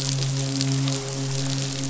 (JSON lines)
{"label": "biophony, midshipman", "recorder": "SoundTrap 500"}